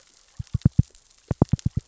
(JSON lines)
{"label": "biophony, knock", "recorder": "SoundTrap 600 or HydroMoth"}